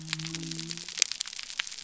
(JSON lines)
{"label": "biophony", "recorder": "SoundTrap 300"}